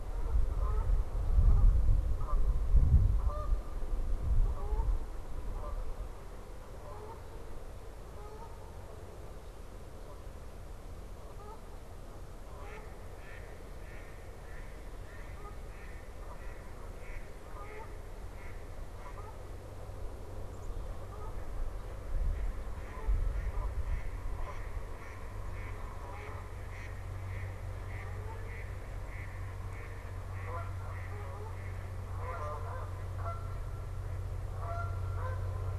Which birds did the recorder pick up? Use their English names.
Canada Goose, Red-bellied Woodpecker, Mallard, Black-capped Chickadee